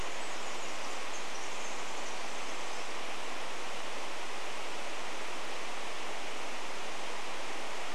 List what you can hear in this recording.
Pacific Wren song